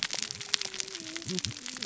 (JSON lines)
{"label": "biophony, cascading saw", "recorder": "SoundTrap 600 or HydroMoth"}